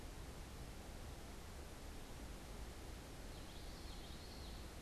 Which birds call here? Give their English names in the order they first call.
Common Yellowthroat